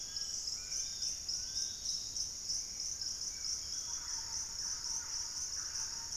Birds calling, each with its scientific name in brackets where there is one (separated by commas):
Collared Trogon (Trogon collaris), Piratic Flycatcher (Legatus leucophaius), Thrush-like Wren (Campylorhynchus turdinus), Fasciated Antshrike (Cymbilaimus lineatus), Spot-winged Antshrike (Pygiptila stellaris)